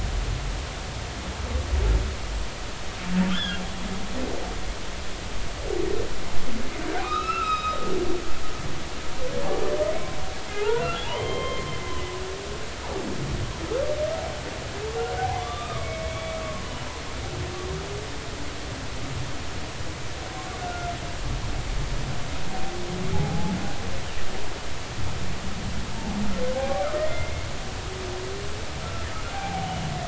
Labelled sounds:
3.3	3.6	humpback whale, 1.3 to 3.6 kHz
7.0	7.8	humpback whale, 0.99 to 5.1 kHz
10.5	11.7	humpback whale, 0.80 to 3.3 kHz
15.2	16.8	humpback whale, 0.80 to 3.7 kHz
20.6	20.9	humpback whale, 1.3 to 1.5 kHz
23.1	23.5	humpback whale, 0.80 to 0.90 kHz
26.5	27.5	humpback whale, 0.80 to 2.2 kHz
28.8	29.1	humpback whale, 1.3 to 1.4 kHz
29.3	29.9	humpback whale, 0.80 to 3.0 kHz

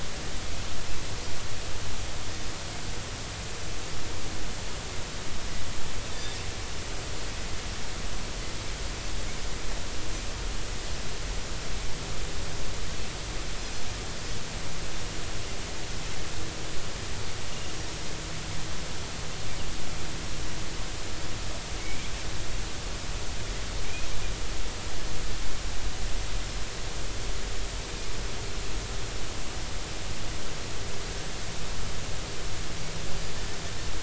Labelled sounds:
6.1	6.4	Pacific white-sided dolphin, 3.4 to 3.7 kHz
21.8	22.1	Pacific white-sided dolphin, 2.1 to 2.4 kHz

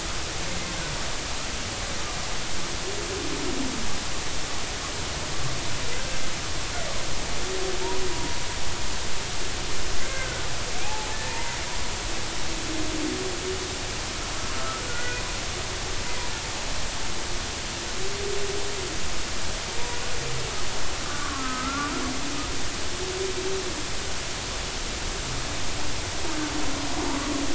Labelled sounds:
10.0	11.6	humpback whale, 0.80 to 1.9 kHz
14.5	15.2	humpback whale, 1.2 to 1.5 kHz
21.1	21.9	humpback whale, 1.2 to 1.6 kHz

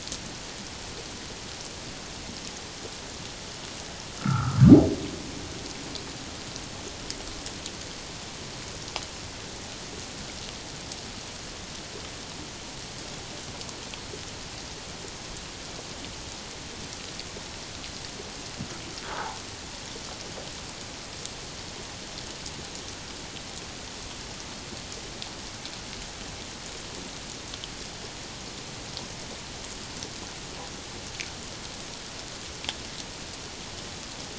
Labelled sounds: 4.2	4.6	humpback whale, 1.1 to 1.5 kHz
19.1	19.4	humpback whale, 0.78 to 1.1 kHz

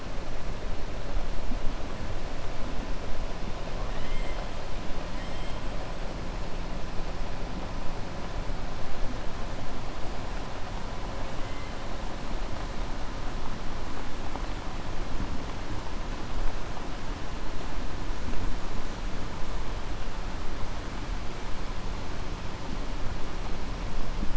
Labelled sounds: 3.8	4.4	killer whale, southern resident, 1.1 to 4.0 kHz
5.1	5.6	killer whale, southern resident, 1.8 to 3.5 kHz

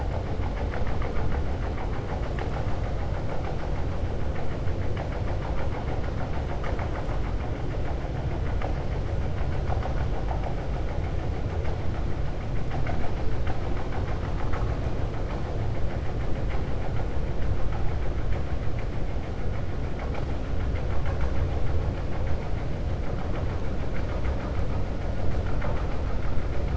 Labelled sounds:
13.6	14.7	vessel noise, 0.74 to 2.9 kHz

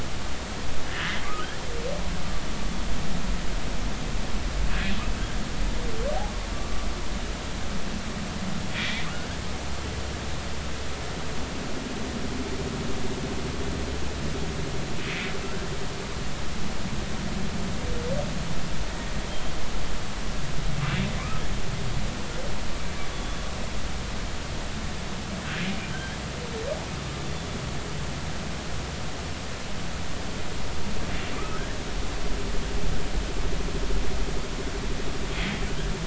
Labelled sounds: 0.9	1.2	humpback whale, 1.6 to 2.1 kHz
8.7	9.1	humpback whale, 1.8 to 2.5 kHz
15.1	15.3	humpback whale, 2.0 to 2.4 kHz
21.2	21.4	humpback whale, 1.0 to 1.3 kHz
23.1	23.4	humpback whale, 3.4 to 3.5 kHz
25.9	26.2	humpback whale, 1.5 to 1.8 kHz
31.3	31.6	humpback whale, 1.1 to 1.3 kHz

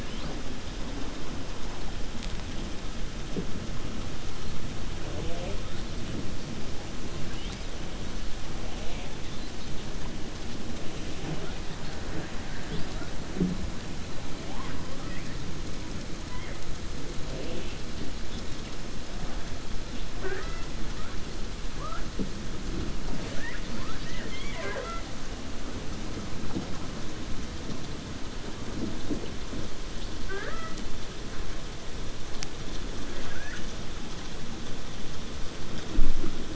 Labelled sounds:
17.3	17.8	killer whale, 2.3 to 3.6 kHz
23.0	25.1	killer whale, 0.29 to 6.2 kHz
30.2	30.8	killer whale, 0.40 to 3.3 kHz
33.1	33.7	killer whale, 0.57 to 3.2 kHz

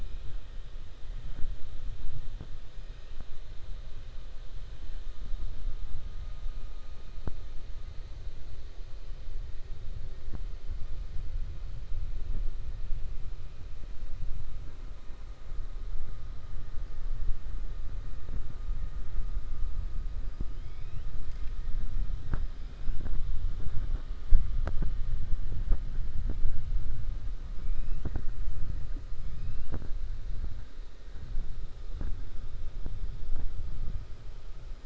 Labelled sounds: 20.5	21.1	killer whale, 2.2 to 3.8 kHz

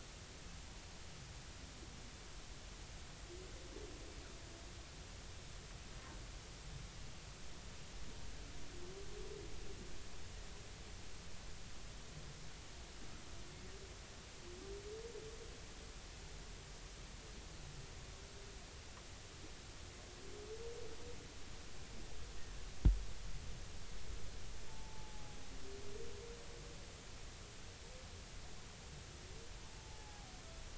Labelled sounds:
24.7	25.4	humpback whale, 0.80 to 0.93 kHz
29.8	30.3	humpback whale, 0.80 to 0.90 kHz

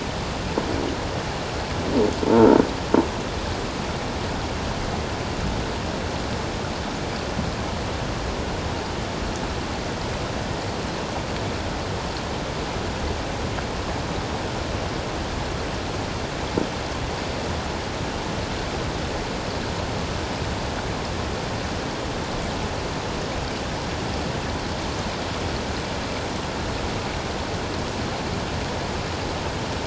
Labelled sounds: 2.3	2.6	croaking sound likely from a nearby submerged object, 1.3 to 1.5 kHz

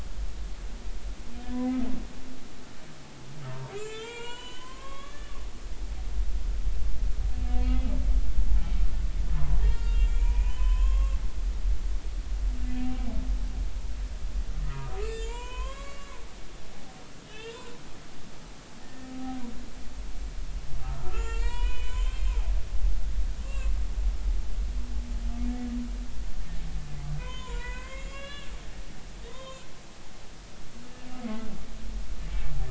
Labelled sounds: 1.5	1.8	humpback whale, 2.0 to 2.1 kHz
3.5	5.4	humpback whale, 0.86 to 7.8 kHz
7.6	7.9	humpback whale, 3.2 to 3.4 kHz
9.6	11.2	humpback whale, 0.90 to 7.0 kHz
12.6	12.9	humpback whale, 1.7 to 1.8 kHz
14.6	16.2	humpback whale, 0.86 to 7.6 kHz
17.2	17.7	humpback whale, 2.8 to 3.8 kHz
18.8	19.4	humpback whale, 0.80 to 1.9 kHz
20.8	22.3	humpback whale, 0.86 to 8.0 kHz
23.4	23.7	humpback whale, 1.0 to 7.2 kHz
27.2	28.5	humpback whale, 0.90 to 7.5 kHz
29.3	29.7	humpback whale, 0.93 to 6.9 kHz

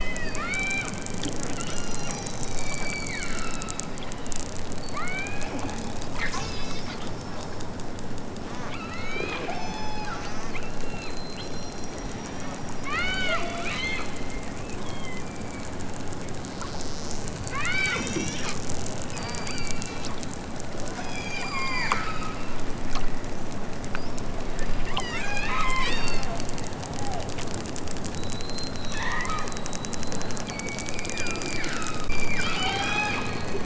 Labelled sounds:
0.3	0.9	killer whale, southern Alaska resident, 1.1 to 6.0 kHz
1.5	4.6	killer whale, southern Alaska resident, 0.87 to 6.9 kHz
4.9	5.5	killer whale, southern Alaska resident, 0.78 to 4.8 kHz
6.1	6.9	killer whale, southern Alaska resident, 0.69 to 8.0 kHz
8.3	10.8	killer whale, southern Alaska resident, 0.46 to 7.4 kHz
11.3	14.1	killer whale, southern Alaska resident, 0.41 to 7.4 kHz
14.8	16.1	killer whale, southern Alaska resident, 1.1 to 5.1 kHz
17.4	18.5	killer whale, southern Alaska resident, 0.74 to 6.9 kHz
19.1	20.5	killer whale, southern Alaska resident, 0.64 to 7.3 kHz
20.9	22.4	killer whale, southern Alaska resident, 0.55 to 7.6 kHz
24.8	26.2	killer whale, southern Alaska resident, 0.69 to 8.0 kHz
28.4	29.5	killer whale, southern Alaska resident, 0.32 to 7.4 kHz
30.4	33.3	killer whale, southern Alaska resident, 0.51 to 8.0 kHz

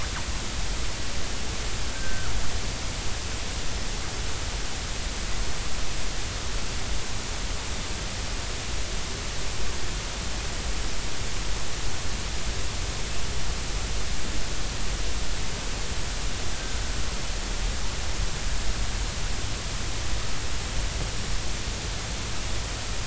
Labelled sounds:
1.9	2.3	killer whale, northern resident, 1.2 to 1.6 kHz
16.5	16.8	killer whale, northern resident, 1.5 to 1.8 kHz

